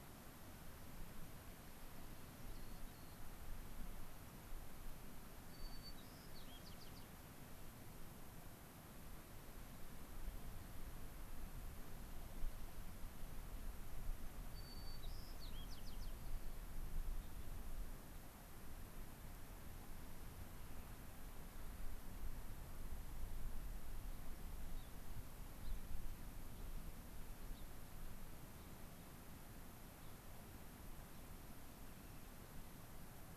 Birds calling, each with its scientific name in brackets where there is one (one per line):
Rock Wren (Salpinctes obsoletus)
White-crowned Sparrow (Zonotrichia leucophrys)
Gray-crowned Rosy-Finch (Leucosticte tephrocotis)